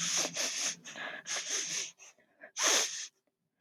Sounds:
Sniff